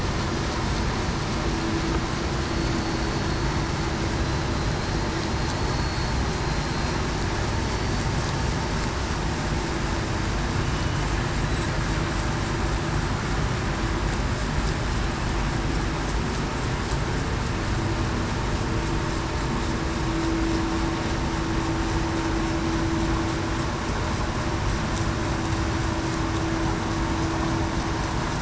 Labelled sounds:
2.5	3.0	killer whale, Bigg's (transient), 4.3 to 4.5 kHz
4.7	5.1	killer whale, Bigg's (transient), 4.1 to 4.2 kHz
5.5	6.7	killer whale, Bigg's (transient), 4.1 to 4.4 kHz
7.7	8.0	killer whale, Bigg's (transient), 4.4 to 4.5 kHz

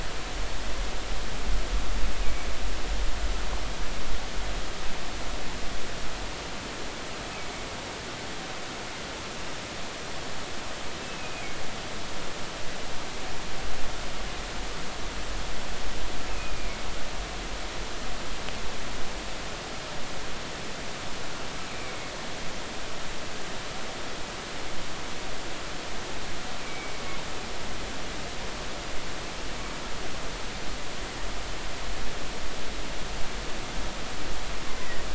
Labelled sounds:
2.2	2.5	humpback whale, 2.2 to 2.5 kHz
7.3	7.6	humpback whale, 2.2 to 2.4 kHz
11.0	11.6	humpback whale, 2.1 to 2.7 kHz
16.3	16.8	humpback whale, 2.1 to 2.7 kHz
26.6	27.0	humpback whale, 2.1 to 2.4 kHz
34.7	35.1	humpback whale, 1.8 to 2.1 kHz

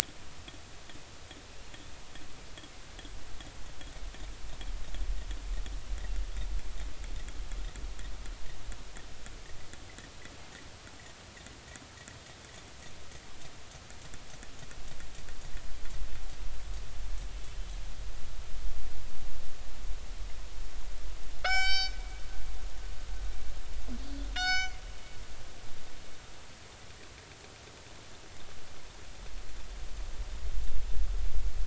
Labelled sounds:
21.4	22.0	killer whale, northern resident, G clan, call N24ii, 0.80 to 7.7 kHz
24.3	24.8	killer whale, northern resident, G clan, call N24ii, 1.3 to 6.8 kHz

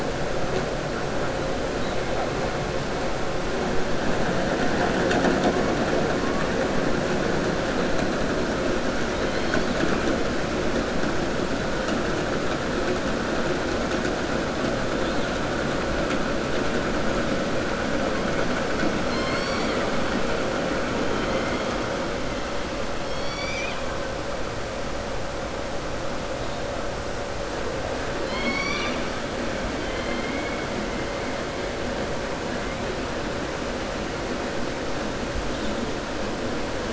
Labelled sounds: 19.0	19.9	killer whale, southern resident, 1.1 to 7.7 kHz
21.1	21.6	killer whale, southern resident, 1.2 to 3.3 kHz
23.0	23.8	killer whale, southern resident, 2.1 to 6.1 kHz
28.2	29.1	killer whale, southern resident, 0.29 to 6.0 kHz
29.8	30.6	killer whale, southern resident, 1.5 to 3.2 kHz

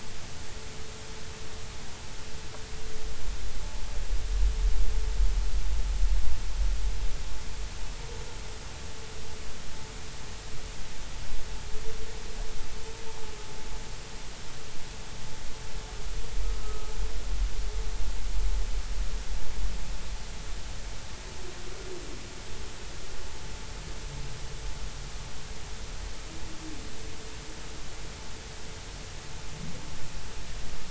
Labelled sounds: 16.6	16.9	vessel noise, 1.2 to 1.3 kHz

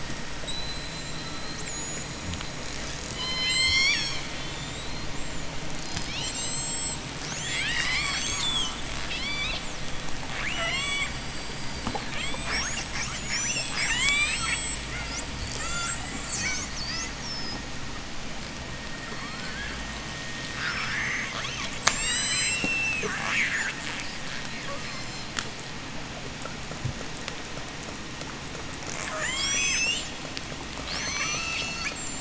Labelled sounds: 0.4	4.5	killer whale, J pod, 0.32 to 8.0 kHz
5.5	17.7	killer whale, J pod, 0.36 to 8.0 kHz
19.1	19.8	killer whale, J pod, 0.47 to 8.0 kHz
20.4	24.0	killer whale, J pod, 0.32 to 8.0 kHz
24.7	25.4	killer whale, J pod, 1.7 to 8.0 kHz
28.4	32.1	killer whale, J pod, 0.44 to 8.0 kHz

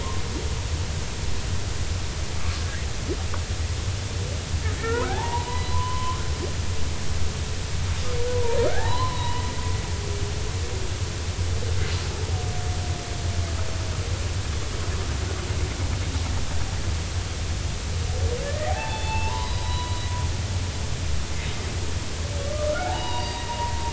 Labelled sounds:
4.8	6.2	humpback whale, 0.80 to 4.1 kHz
8.3	9.4	humpback whale, 0.80 to 4.1 kHz
18.4	20.0	humpback whale, 0.80 to 4.0 kHz
22.5	23.9	humpback whale, 0.80 to 4.9 kHz

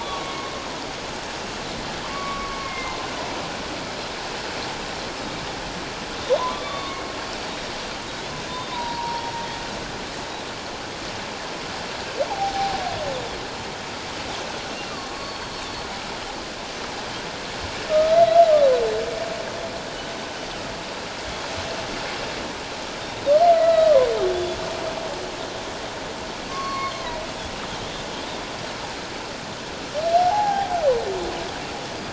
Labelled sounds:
0.0	0.6	humpback whale, 1.0 to 2.2 kHz
2.0	3.1	humpback whale, 0.78 to 2.3 kHz
6.5	7.1	humpback whale, 1.0 to 3.8 kHz
8.5	9.3	Pacific white-sided dolphin, 3.5 to 5.6 kHz
8.7	9.2	humpback whale, 0.88 to 1.1 kHz
12.3	12.8	humpback whale, 0.78 to 0.94 kHz
15.1	15.4	humpback whale, 1.1 to 1.2 kHz
17.9	18.2	humpback whale, 1.2 to 1.3 kHz
23.5	23.9	humpback whale, 1.2 to 2.0 kHz
24.2	24.6	Pacific white-sided dolphin, 3.3 to 3.5 kHz
26.5	27.1	humpback whale, 1.0 to 4.4 kHz
26.7	26.9	Pacific white-sided dolphin, 2.1 to 2.2 kHz
30.2	30.7	humpback whale, 0.78 to 0.94 kHz

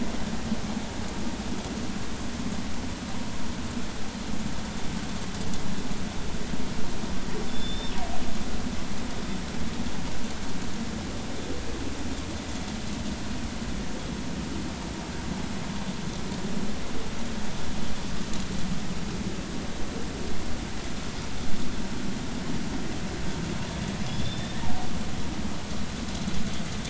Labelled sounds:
7.5	8.0	killer whale, northern resident, G clan, GG subclan, call N28, 5.2 to 5.5 kHz
8.5	8.9	killer whale, northern resident, G clan, GG subclan, call N28, 3.4 to 3.6 kHz
24.0	24.6	killer whale, northern resident, G clan, GG subclan, call N28, 3.3 to 5.4 kHz
24.6	24.9	killer whale, northern resident, G clan, call N23i, 0.80 to 0.99 kHz

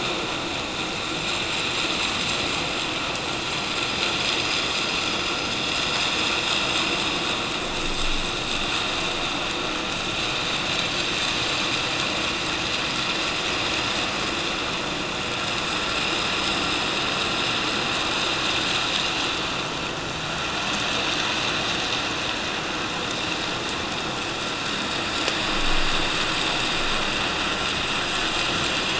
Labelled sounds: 1.2	1.5	vessel noise, 7.2 to 7.4 kHz

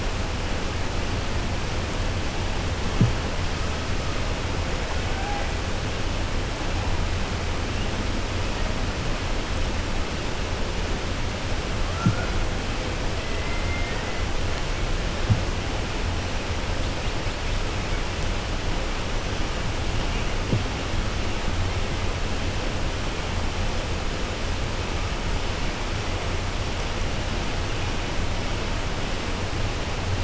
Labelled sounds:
13.2	14.0	killer whale, 0.97 to 2.7 kHz

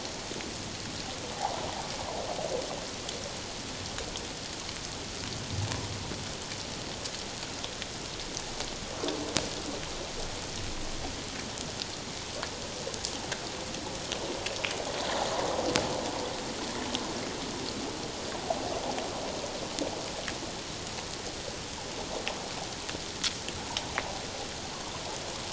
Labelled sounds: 1.4	1.7	water noise, 0.78 to 1.0 kHz

